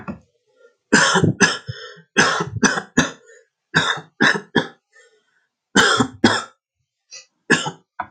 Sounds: Cough